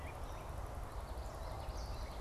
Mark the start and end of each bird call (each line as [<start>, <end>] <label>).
[0.00, 2.20] American Robin (Turdus migratorius)
[1.64, 2.20] Common Yellowthroat (Geothlypis trichas)